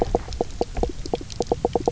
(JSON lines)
{"label": "biophony, knock croak", "recorder": "SoundTrap 300"}